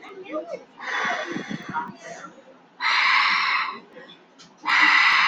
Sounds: Sigh